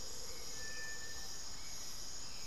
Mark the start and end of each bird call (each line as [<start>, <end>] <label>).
[0.00, 1.30] Amazonian Motmot (Momotus momota)
[0.00, 2.47] Hauxwell's Thrush (Turdus hauxwelli)